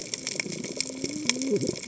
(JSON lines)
{"label": "biophony, cascading saw", "recorder": "HydroMoth"}